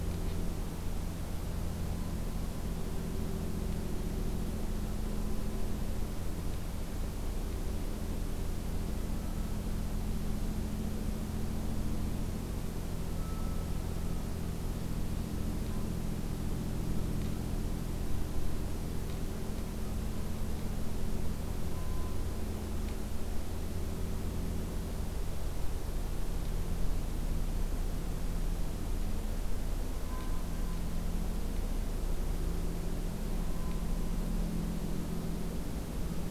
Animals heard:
forest ambience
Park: Acadia National Park